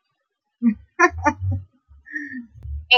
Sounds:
Laughter